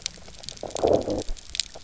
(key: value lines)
label: biophony, low growl
recorder: SoundTrap 300

label: biophony, grazing
recorder: SoundTrap 300